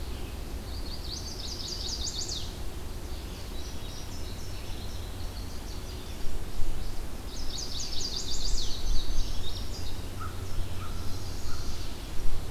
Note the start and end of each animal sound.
0.7s-2.6s: Chestnut-sided Warbler (Setophaga pensylvanica)
3.0s-7.0s: Indigo Bunting (Passerina cyanea)
7.2s-8.9s: Chestnut-sided Warbler (Setophaga pensylvanica)
8.4s-10.2s: Indigo Bunting (Passerina cyanea)
10.0s-11.3s: American Crow (Corvus brachyrhynchos)
10.9s-12.0s: Chestnut-sided Warbler (Setophaga pensylvanica)

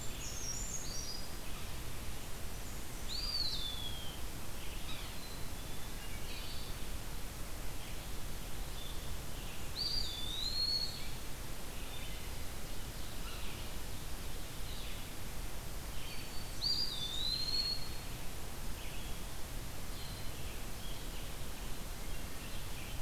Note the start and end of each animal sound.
0.0s-0.5s: Black-capped Chickadee (Poecile atricapillus)
0.0s-1.6s: Brown Creeper (Certhia americana)
0.0s-20.3s: Blue-headed Vireo (Vireo solitarius)
0.0s-23.0s: Red-eyed Vireo (Vireo olivaceus)
2.2s-3.6s: Blackburnian Warbler (Setophaga fusca)
3.0s-4.2s: Eastern Wood-Pewee (Contopus virens)
4.9s-5.2s: Yellow-bellied Sapsucker (Sphyrapicus varius)
5.1s-6.0s: Black-capped Chickadee (Poecile atricapillus)
5.9s-6.8s: Wood Thrush (Hylocichla mustelina)
9.3s-11.0s: Blackburnian Warbler (Setophaga fusca)
9.6s-11.0s: Eastern Wood-Pewee (Contopus virens)
12.4s-14.1s: Ovenbird (Seiurus aurocapilla)
13.2s-13.6s: Yellow-bellied Sapsucker (Sphyrapicus varius)
15.9s-16.6s: Black-throated Green Warbler (Setophaga virens)
16.1s-17.9s: Blackburnian Warbler (Setophaga fusca)
16.5s-18.1s: Eastern Wood-Pewee (Contopus virens)

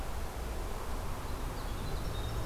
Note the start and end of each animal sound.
1.2s-2.5s: Winter Wren (Troglodytes hiemalis)

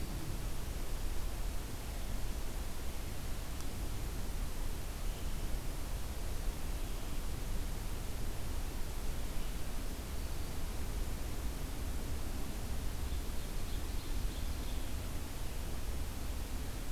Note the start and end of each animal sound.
13.0s-15.0s: Ovenbird (Seiurus aurocapilla)

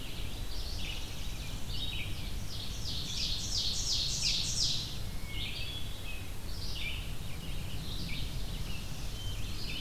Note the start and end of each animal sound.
0.0s-9.8s: Red-eyed Vireo (Vireo olivaceus)
0.6s-2.0s: Northern Parula (Setophaga americana)
2.2s-5.2s: Ovenbird (Seiurus aurocapilla)
5.3s-6.3s: Hermit Thrush (Catharus guttatus)
8.2s-9.8s: Northern Parula (Setophaga americana)
9.2s-9.8s: Hermit Thrush (Catharus guttatus)

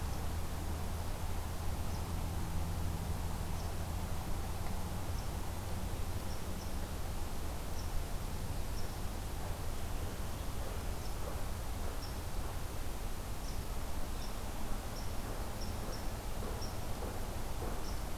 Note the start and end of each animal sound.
0.0s-18.2s: Red Squirrel (Tamiasciurus hudsonicus)

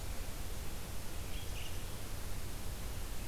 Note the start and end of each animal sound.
1.0s-3.3s: Red-eyed Vireo (Vireo olivaceus)

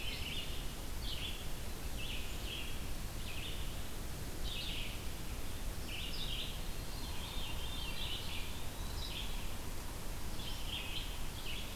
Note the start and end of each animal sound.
0.0s-8.5s: Red-eyed Vireo (Vireo olivaceus)
6.6s-8.2s: Veery (Catharus fuscescens)
7.5s-9.0s: Eastern Wood-Pewee (Contopus virens)
8.8s-11.8s: Red-eyed Vireo (Vireo olivaceus)

